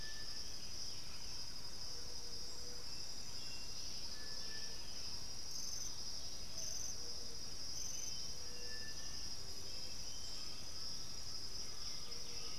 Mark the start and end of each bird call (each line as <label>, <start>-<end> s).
Undulated Tinamou (Crypturellus undulatus), 0.0-0.6 s
Buff-throated Saltator (Saltator maximus), 0.0-5.5 s
Thrush-like Wren (Campylorhynchus turdinus), 0.0-6.0 s
Striped Cuckoo (Tapera naevia), 0.0-12.6 s
Bluish-fronted Jacamar (Galbula cyanescens), 7.6-11.4 s
Undulated Tinamou (Crypturellus undulatus), 10.3-12.6 s
White-winged Becard (Pachyramphus polychopterus), 11.3-12.6 s